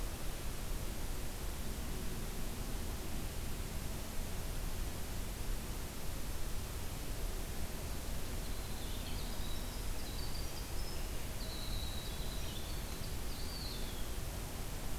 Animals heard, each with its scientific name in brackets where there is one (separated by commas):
Winter Wren (Troglodytes hiemalis), Eastern Wood-Pewee (Contopus virens)